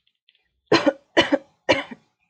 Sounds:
Cough